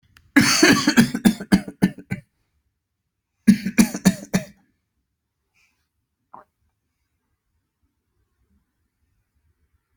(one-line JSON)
{"expert_labels": [{"quality": "ok", "cough_type": "dry", "dyspnea": false, "wheezing": false, "stridor": false, "choking": false, "congestion": false, "nothing": true, "diagnosis": "lower respiratory tract infection", "severity": "mild"}], "age": 36, "gender": "male", "respiratory_condition": true, "fever_muscle_pain": true, "status": "symptomatic"}